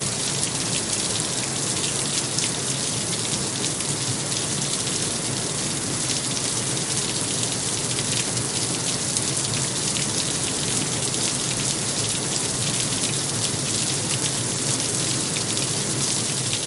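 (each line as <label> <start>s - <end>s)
Heavy rain falling continuously, producing a loud and steady sound. 0.0s - 16.6s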